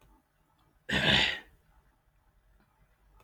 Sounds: Throat clearing